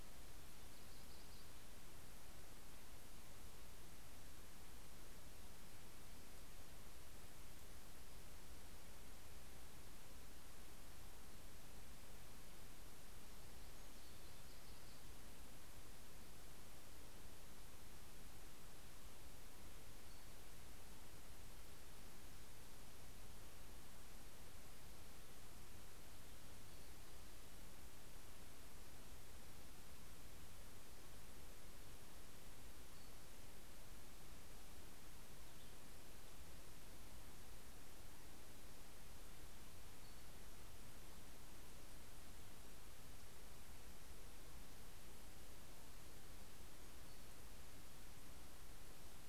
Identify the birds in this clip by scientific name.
Setophaga coronata